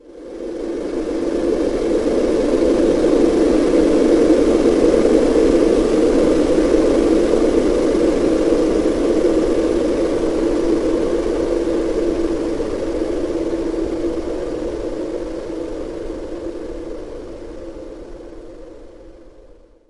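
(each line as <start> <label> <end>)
0.0 Wind blowing continuously, gradually increasing and then decreasing. 19.9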